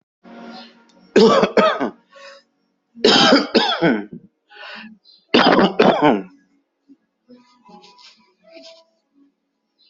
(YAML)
expert_labels:
- quality: good
  cough_type: wet
  dyspnea: false
  wheezing: false
  stridor: false
  choking: false
  congestion: false
  nothing: true
  diagnosis: lower respiratory tract infection
  severity: mild
age: 47
gender: female
respiratory_condition: true
fever_muscle_pain: false
status: COVID-19